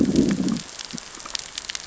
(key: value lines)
label: biophony, growl
recorder: SoundTrap 600 or HydroMoth